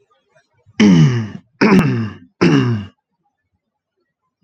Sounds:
Throat clearing